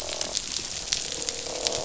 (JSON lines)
{"label": "biophony, croak", "recorder": "SoundTrap 500"}